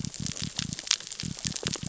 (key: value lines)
label: biophony
recorder: SoundTrap 600 or HydroMoth